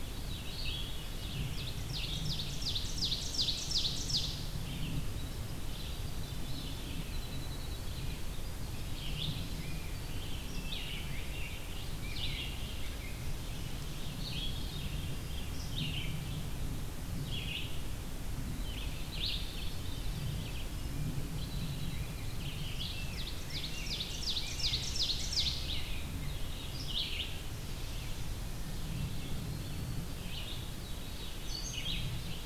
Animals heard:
Red-eyed Vireo (Vireo olivaceus)
Ovenbird (Seiurus aurocapilla)
Eastern Wood-Pewee (Contopus virens)
Winter Wren (Troglodytes hiemalis)
Rose-breasted Grosbeak (Pheucticus ludovicianus)
Veery (Catharus fuscescens)

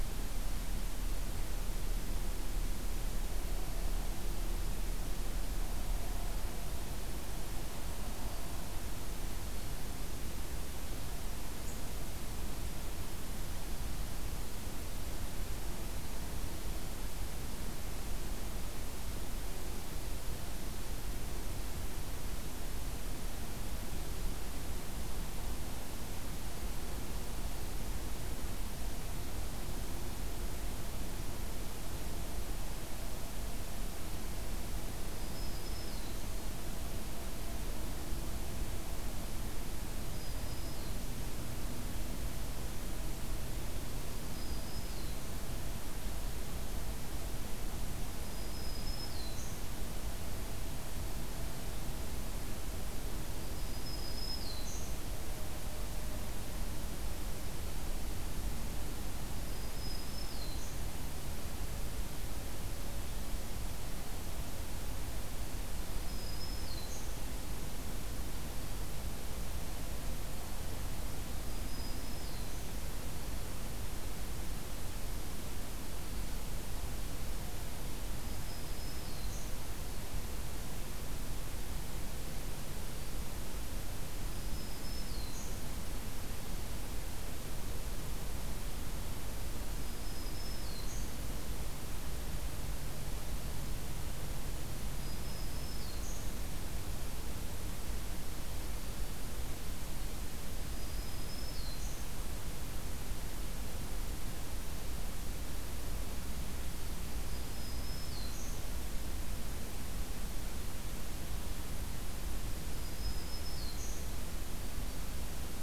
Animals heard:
Black-throated Green Warbler (Setophaga virens)

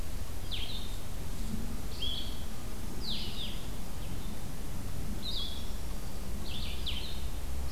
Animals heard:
Blue-headed Vireo (Vireo solitarius)
Black-throated Green Warbler (Setophaga virens)

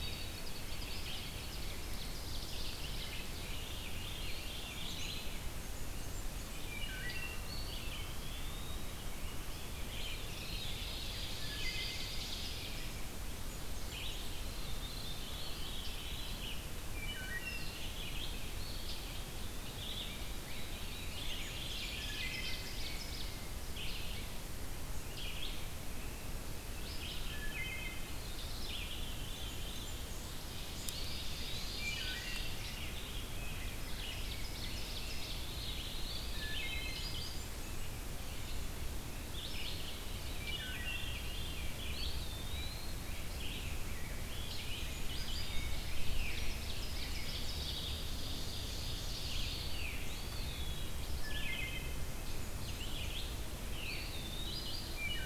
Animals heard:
Red-eyed Vireo (Vireo olivaceus)
Eastern Wood-Pewee (Contopus virens)
Rose-breasted Grosbeak (Pheucticus ludovicianus)
Blackburnian Warbler (Setophaga fusca)
Wood Thrush (Hylocichla mustelina)
Veery (Catharus fuscescens)
Black-and-white Warbler (Mniotilta varia)
Ovenbird (Seiurus aurocapilla)

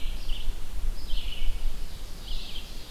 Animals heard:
Ovenbird (Seiurus aurocapilla)
Red-eyed Vireo (Vireo olivaceus)

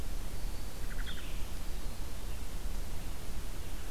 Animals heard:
Red-eyed Vireo (Vireo olivaceus)
Black-throated Green Warbler (Setophaga virens)

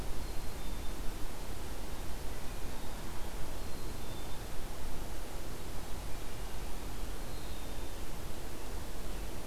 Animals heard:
Black-capped Chickadee (Poecile atricapillus)

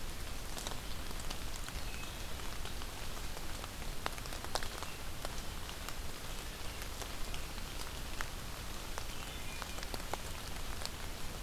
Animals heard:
Wood Thrush (Hylocichla mustelina)

